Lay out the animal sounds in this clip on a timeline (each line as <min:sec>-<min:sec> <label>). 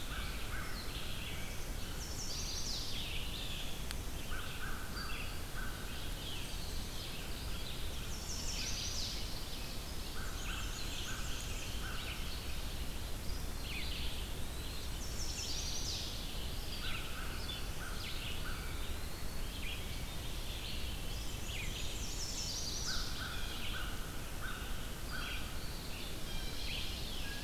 0:00.0-0:02.1 American Crow (Corvus brachyrhynchos)
0:00.0-0:06.4 Red-eyed Vireo (Vireo olivaceus)
0:01.7-0:02.9 Chestnut-sided Warbler (Setophaga pensylvanica)
0:04.1-0:06.0 American Crow (Corvus brachyrhynchos)
0:06.8-0:27.4 Red-eyed Vireo (Vireo olivaceus)
0:08.0-0:09.1 Chestnut-sided Warbler (Setophaga pensylvanica)
0:08.3-0:09.8 Ovenbird (Seiurus aurocapilla)
0:10.0-0:12.4 American Crow (Corvus brachyrhynchos)
0:10.2-0:11.6 Black-and-white Warbler (Mniotilta varia)
0:10.2-0:12.9 Ovenbird (Seiurus aurocapilla)
0:13.6-0:14.9 Eastern Wood-Pewee (Contopus virens)
0:14.8-0:16.1 Chestnut-sided Warbler (Setophaga pensylvanica)
0:16.6-0:18.9 American Crow (Corvus brachyrhynchos)
0:18.2-0:19.6 Eastern Wood-Pewee (Contopus virens)
0:20.6-0:22.2 Veery (Catharus fuscescens)
0:21.0-0:22.4 Black-and-white Warbler (Mniotilta varia)
0:21.7-0:23.0 Chestnut-sided Warbler (Setophaga pensylvanica)
0:22.8-0:25.7 American Crow (Corvus brachyrhynchos)
0:23.2-0:23.8 Blue Jay (Cyanocitta cristata)
0:26.2-0:27.4 Ovenbird (Seiurus aurocapilla)
0:26.3-0:26.7 Blue Jay (Cyanocitta cristata)